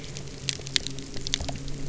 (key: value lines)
label: anthrophony, boat engine
recorder: SoundTrap 300